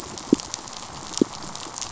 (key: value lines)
label: biophony, pulse
recorder: SoundTrap 500